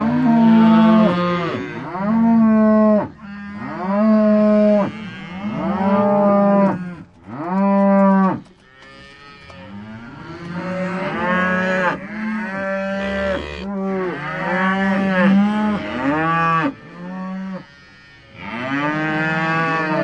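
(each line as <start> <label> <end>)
0.0 Cows mooing and breathing. 20.0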